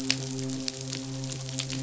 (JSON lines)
{"label": "biophony, midshipman", "recorder": "SoundTrap 500"}